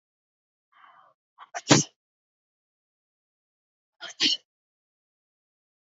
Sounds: Sneeze